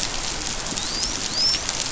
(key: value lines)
label: biophony, dolphin
recorder: SoundTrap 500